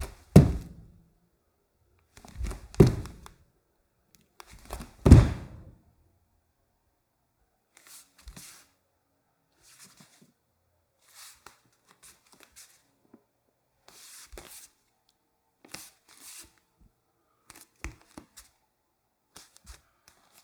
How many objects were dropped?
three